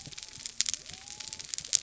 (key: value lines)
label: biophony
recorder: SoundTrap 300